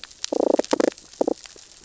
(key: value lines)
label: biophony, damselfish
recorder: SoundTrap 600 or HydroMoth